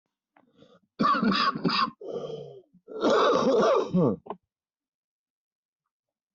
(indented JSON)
{
  "expert_labels": [
    {
      "quality": "good",
      "cough_type": "wet",
      "dyspnea": false,
      "wheezing": false,
      "stridor": false,
      "choking": false,
      "congestion": false,
      "nothing": true,
      "diagnosis": "lower respiratory tract infection",
      "severity": "mild"
    }
  ],
  "age": 48,
  "gender": "male",
  "respiratory_condition": false,
  "fever_muscle_pain": false,
  "status": "healthy"
}